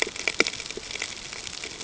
{"label": "ambient", "recorder": "HydroMoth"}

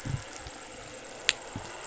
{"label": "anthrophony, boat engine", "recorder": "SoundTrap 500"}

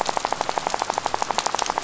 {"label": "biophony, rattle", "recorder": "SoundTrap 500"}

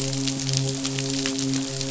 {"label": "biophony, midshipman", "recorder": "SoundTrap 500"}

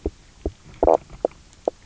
{"label": "biophony, knock croak", "recorder": "SoundTrap 300"}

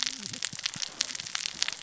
{"label": "biophony, cascading saw", "recorder": "SoundTrap 600 or HydroMoth"}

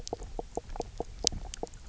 {"label": "biophony, knock croak", "recorder": "SoundTrap 300"}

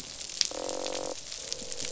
{"label": "biophony, croak", "recorder": "SoundTrap 500"}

